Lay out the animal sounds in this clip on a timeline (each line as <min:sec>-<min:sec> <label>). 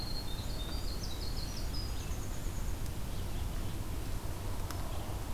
0:00.0-0:03.0 Winter Wren (Troglodytes hiemalis)
0:01.5-0:05.3 Red-eyed Vireo (Vireo olivaceus)